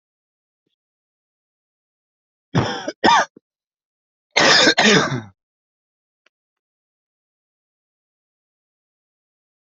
{"expert_labels": [{"quality": "good", "cough_type": "wet", "dyspnea": false, "wheezing": false, "stridor": false, "choking": false, "congestion": false, "nothing": true, "diagnosis": "lower respiratory tract infection", "severity": "mild"}], "gender": "other", "respiratory_condition": true, "fever_muscle_pain": true, "status": "symptomatic"}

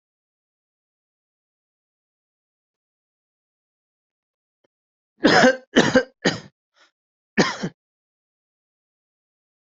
{"expert_labels": [{"quality": "good", "cough_type": "wet", "dyspnea": false, "wheezing": false, "stridor": false, "choking": false, "congestion": false, "nothing": true, "diagnosis": "COVID-19", "severity": "mild"}], "age": 19, "gender": "male", "respiratory_condition": true, "fever_muscle_pain": false, "status": "COVID-19"}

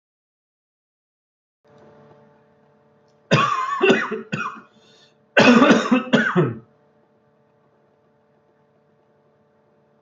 {"expert_labels": [{"quality": "good", "cough_type": "dry", "dyspnea": false, "wheezing": false, "stridor": false, "choking": false, "congestion": false, "nothing": true, "diagnosis": "healthy cough", "severity": "pseudocough/healthy cough"}], "age": 38, "gender": "male", "respiratory_condition": true, "fever_muscle_pain": true, "status": "symptomatic"}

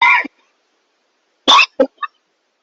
{"expert_labels": [{"quality": "poor", "cough_type": "unknown", "dyspnea": false, "wheezing": false, "stridor": false, "choking": false, "congestion": false, "nothing": true, "severity": "unknown"}], "age": 30, "gender": "male", "respiratory_condition": true, "fever_muscle_pain": false, "status": "symptomatic"}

